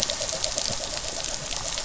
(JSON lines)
{"label": "anthrophony, boat engine", "recorder": "SoundTrap 500"}